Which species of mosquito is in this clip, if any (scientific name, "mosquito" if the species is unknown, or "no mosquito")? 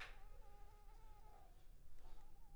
Anopheles arabiensis